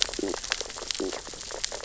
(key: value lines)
label: biophony, stridulation
recorder: SoundTrap 600 or HydroMoth

label: biophony, sea urchins (Echinidae)
recorder: SoundTrap 600 or HydroMoth